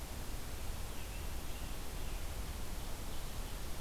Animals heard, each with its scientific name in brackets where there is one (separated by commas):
Scarlet Tanager (Piranga olivacea)